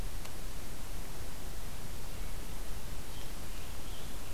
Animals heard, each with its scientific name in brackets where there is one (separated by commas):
American Robin (Turdus migratorius)